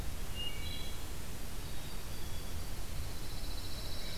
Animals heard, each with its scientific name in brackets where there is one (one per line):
Pine Warbler (Setophaga pinus)
Black-capped Chickadee (Poecile atricapillus)
Wood Thrush (Hylocichla mustelina)